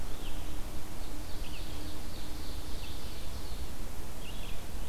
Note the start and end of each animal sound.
[0.00, 4.89] Red-eyed Vireo (Vireo olivaceus)
[0.88, 3.66] Ovenbird (Seiurus aurocapilla)

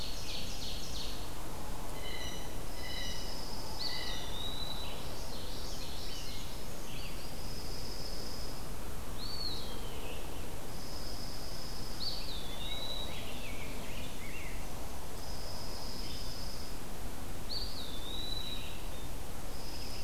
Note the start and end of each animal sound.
[0.00, 1.17] Ovenbird (Seiurus aurocapilla)
[0.00, 20.04] Red-eyed Vireo (Vireo olivaceus)
[1.80, 4.37] Blue Jay (Cyanocitta cristata)
[2.64, 4.12] Dark-eyed Junco (Junco hyemalis)
[3.70, 4.99] Eastern Wood-Pewee (Contopus virens)
[4.75, 6.93] Common Yellowthroat (Geothlypis trichas)
[7.24, 8.62] Dark-eyed Junco (Junco hyemalis)
[9.05, 9.81] Eastern Wood-Pewee (Contopus virens)
[10.60, 12.21] Dark-eyed Junco (Junco hyemalis)
[11.92, 13.23] Eastern Wood-Pewee (Contopus virens)
[12.18, 14.67] Rose-breasted Grosbeak (Pheucticus ludovicianus)
[14.94, 16.82] Dark-eyed Junco (Junco hyemalis)
[17.43, 18.85] Eastern Wood-Pewee (Contopus virens)
[19.35, 20.04] Dark-eyed Junco (Junco hyemalis)

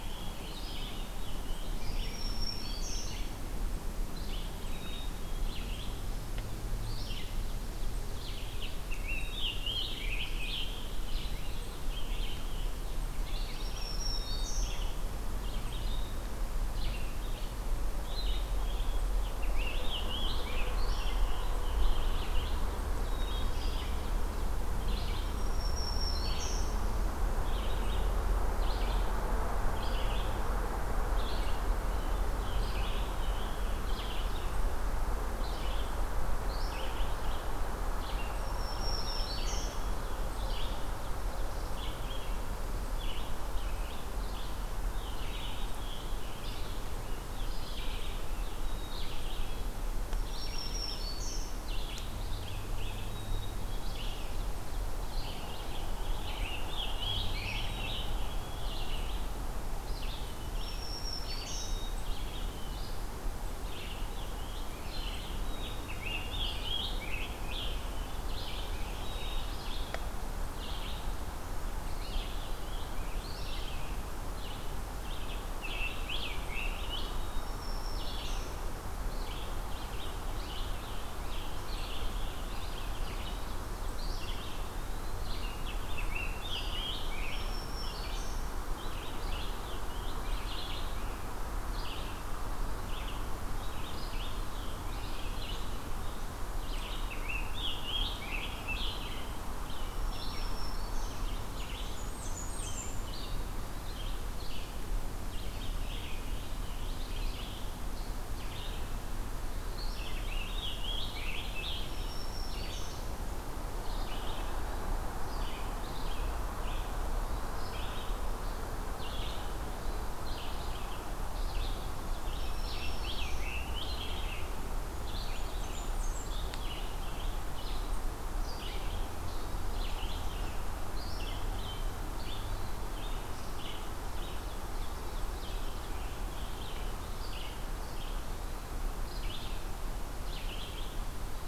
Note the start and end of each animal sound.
[0.00, 0.52] Black-capped Chickadee (Poecile atricapillus)
[0.00, 3.34] Scarlet Tanager (Piranga olivacea)
[0.00, 35.96] Red-eyed Vireo (Vireo olivaceus)
[1.75, 3.15] Black-throated Green Warbler (Setophaga virens)
[4.56, 5.68] Black-capped Chickadee (Poecile atricapillus)
[8.64, 10.98] Scarlet Tanager (Piranga olivacea)
[9.10, 10.22] Black-capped Chickadee (Poecile atricapillus)
[13.42, 15.00] Black-throated Green Warbler (Setophaga virens)
[13.93, 15.09] Black-capped Chickadee (Poecile atricapillus)
[18.04, 19.18] Black-capped Chickadee (Poecile atricapillus)
[19.36, 22.48] Scarlet Tanager (Piranga olivacea)
[23.00, 24.08] Black-capped Chickadee (Poecile atricapillus)
[25.32, 26.71] Black-throated Green Warbler (Setophaga virens)
[32.98, 33.89] Black-capped Chickadee (Poecile atricapillus)
[36.38, 141.47] Red-eyed Vireo (Vireo olivaceus)
[38.27, 39.75] Black-throated Green Warbler (Setophaga virens)
[45.20, 46.44] Black-capped Chickadee (Poecile atricapillus)
[48.35, 49.68] Black-capped Chickadee (Poecile atricapillus)
[50.02, 51.63] Black-throated Green Warbler (Setophaga virens)
[52.93, 54.24] Black-capped Chickadee (Poecile atricapillus)
[56.24, 58.14] Scarlet Tanager (Piranga olivacea)
[57.51, 58.82] Black-capped Chickadee (Poecile atricapillus)
[60.27, 61.83] Black-throated Green Warbler (Setophaga virens)
[61.44, 62.94] Black-capped Chickadee (Poecile atricapillus)
[63.42, 68.02] Scarlet Tanager (Piranga olivacea)
[65.43, 66.64] Black-capped Chickadee (Poecile atricapillus)
[68.95, 70.12] Black-capped Chickadee (Poecile atricapillus)
[75.27, 77.19] Scarlet Tanager (Piranga olivacea)
[76.52, 77.64] Black-capped Chickadee (Poecile atricapillus)
[76.99, 78.69] Black-throated Green Warbler (Setophaga virens)
[80.44, 82.91] Scarlet Tanager (Piranga olivacea)
[84.00, 85.28] Eastern Wood-Pewee (Contopus virens)
[85.50, 87.79] Scarlet Tanager (Piranga olivacea)
[87.01, 88.69] Black-throated Green Warbler (Setophaga virens)
[88.75, 90.81] Scarlet Tanager (Piranga olivacea)
[96.81, 99.39] Scarlet Tanager (Piranga olivacea)
[99.84, 101.25] Black-throated Green Warbler (Setophaga virens)
[101.46, 103.24] Blackburnian Warbler (Setophaga fusca)
[105.18, 107.79] Scarlet Tanager (Piranga olivacea)
[109.90, 112.22] Scarlet Tanager (Piranga olivacea)
[111.76, 112.94] Black-throated Green Warbler (Setophaga virens)
[117.05, 117.86] Hermit Thrush (Catharus guttatus)
[119.49, 120.14] Hermit Thrush (Catharus guttatus)
[122.24, 123.49] Black-throated Green Warbler (Setophaga virens)
[122.25, 124.53] Scarlet Tanager (Piranga olivacea)
[124.62, 126.58] Blackburnian Warbler (Setophaga fusca)
[133.92, 135.98] Ovenbird (Seiurus aurocapilla)
[137.98, 138.84] Hermit Thrush (Catharus guttatus)

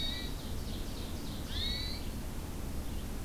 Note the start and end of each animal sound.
[0.00, 1.42] Ovenbird (Seiurus aurocapilla)
[0.00, 3.25] Red-eyed Vireo (Vireo olivaceus)
[1.49, 2.06] Hermit Thrush (Catharus guttatus)

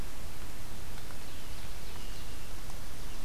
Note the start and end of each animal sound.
[0.97, 2.51] Ovenbird (Seiurus aurocapilla)
[1.85, 2.58] Hermit Thrush (Catharus guttatus)

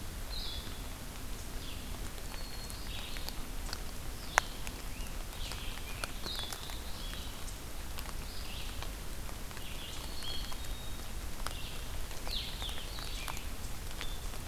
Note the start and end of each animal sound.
[1.39, 14.48] Red-eyed Vireo (Vireo olivaceus)
[2.18, 3.40] Black-capped Chickadee (Poecile atricapillus)
[4.61, 6.36] Scarlet Tanager (Piranga olivacea)
[9.80, 11.23] Black-capped Chickadee (Poecile atricapillus)

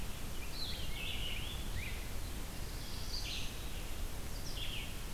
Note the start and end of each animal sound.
[0.00, 2.17] Rose-breasted Grosbeak (Pheucticus ludovicianus)
[0.00, 5.02] Red-eyed Vireo (Vireo olivaceus)
[2.27, 3.64] Black-throated Blue Warbler (Setophaga caerulescens)

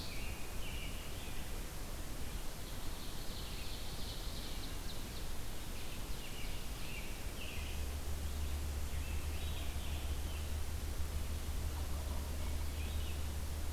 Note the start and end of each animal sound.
[0.00, 1.51] American Robin (Turdus migratorius)
[2.35, 5.31] Ovenbird (Seiurus aurocapilla)
[5.65, 7.02] Ovenbird (Seiurus aurocapilla)
[6.07, 7.82] American Robin (Turdus migratorius)
[8.78, 10.66] American Robin (Turdus migratorius)
[12.14, 13.36] American Robin (Turdus migratorius)

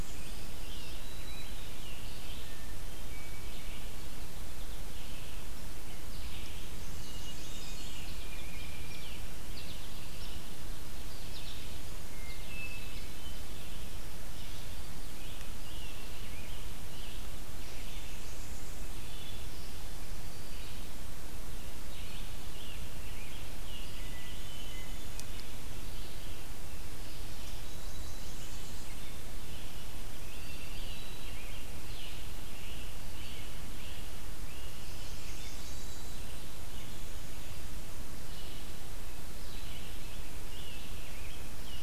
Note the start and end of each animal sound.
[0.00, 0.53] Blackburnian Warbler (Setophaga fusca)
[0.00, 2.55] Scarlet Tanager (Piranga olivacea)
[0.00, 6.78] Red-eyed Vireo (Vireo olivaceus)
[2.35, 3.55] Hermit Thrush (Catharus guttatus)
[6.57, 8.44] Blackburnian Warbler (Setophaga fusca)
[6.78, 7.87] Hermit Thrush (Catharus guttatus)
[7.65, 41.82] Red-eyed Vireo (Vireo olivaceus)
[8.05, 9.24] Tufted Titmouse (Baeolophus bicolor)
[9.39, 10.04] American Goldfinch (Spinus tristis)
[11.00, 11.75] American Goldfinch (Spinus tristis)
[11.97, 13.60] Hermit Thrush (Catharus guttatus)
[15.12, 17.50] Scarlet Tanager (Piranga olivacea)
[17.55, 19.17] Blackburnian Warbler (Setophaga fusca)
[21.84, 24.02] Scarlet Tanager (Piranga olivacea)
[23.97, 25.54] Hermit Thrush (Catharus guttatus)
[27.02, 29.16] Blackburnian Warbler (Setophaga fusca)
[29.87, 32.87] Scarlet Tanager (Piranga olivacea)
[30.18, 31.29] Hermit Thrush (Catharus guttatus)
[32.34, 34.93] Great Crested Flycatcher (Myiarchus crinitus)
[34.53, 36.50] Blackburnian Warbler (Setophaga fusca)
[39.40, 41.82] Scarlet Tanager (Piranga olivacea)

